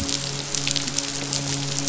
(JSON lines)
{"label": "biophony, midshipman", "recorder": "SoundTrap 500"}